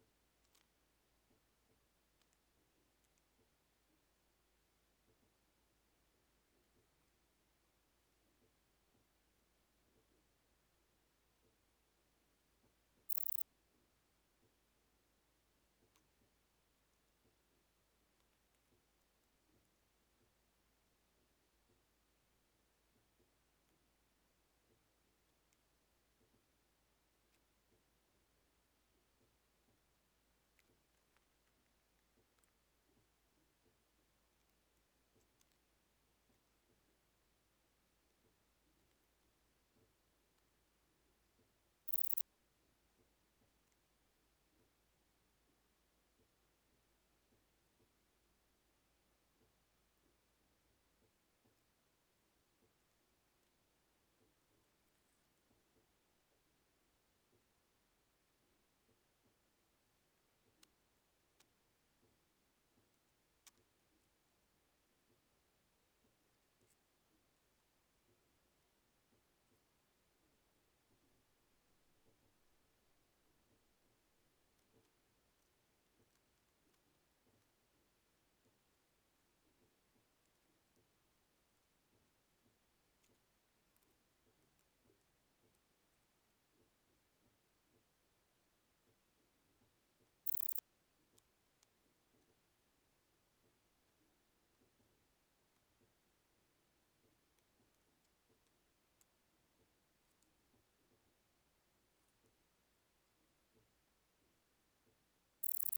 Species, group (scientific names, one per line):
Pachytrachis gracilis
Orthoptera